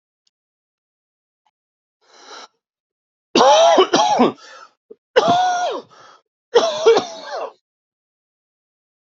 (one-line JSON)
{"expert_labels": [{"quality": "ok", "cough_type": "dry", "dyspnea": true, "wheezing": true, "stridor": false, "choking": false, "congestion": false, "nothing": false, "diagnosis": "COVID-19", "severity": "severe"}], "age": 42, "gender": "male", "respiratory_condition": false, "fever_muscle_pain": false, "status": "healthy"}